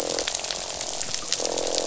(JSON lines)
{"label": "biophony, croak", "recorder": "SoundTrap 500"}